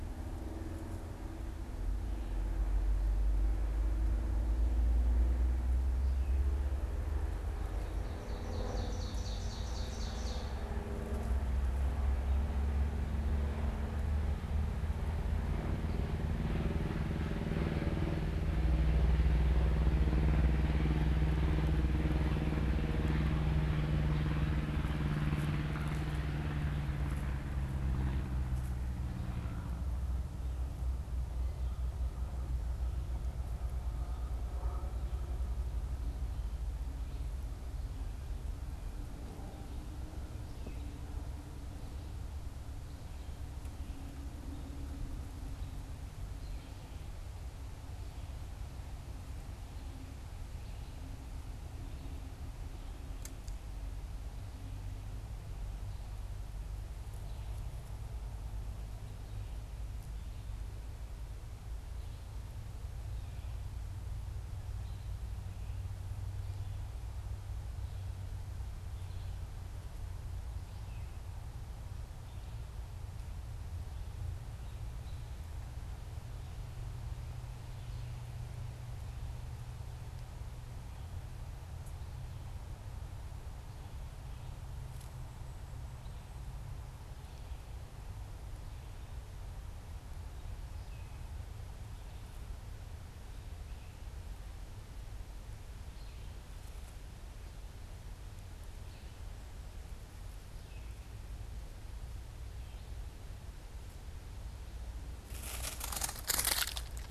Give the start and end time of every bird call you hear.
[7.78, 10.78] Ovenbird (Seiurus aurocapilla)
[40.48, 91.48] Red-eyed Vireo (Vireo olivaceus)

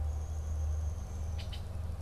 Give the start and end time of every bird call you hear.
[0.00, 1.60] Downy Woodpecker (Dryobates pubescens)
[1.00, 2.02] Red-winged Blackbird (Agelaius phoeniceus)

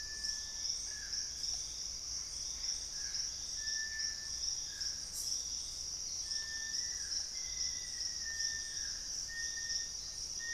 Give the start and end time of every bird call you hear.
[0.00, 10.53] Little Tinamou (Crypturellus soui)
[0.25, 6.85] Purple-throated Fruitcrow (Querula purpurata)
[1.95, 4.35] Gray Antbird (Cercomacra cinerascens)
[5.85, 6.45] unidentified bird
[6.55, 8.95] Black-faced Antthrush (Formicarius analis)

